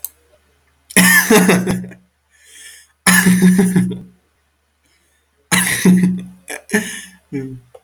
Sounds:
Laughter